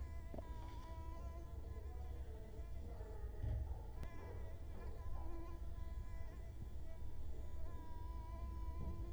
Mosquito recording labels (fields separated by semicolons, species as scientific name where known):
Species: Culex quinquefasciatus; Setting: cup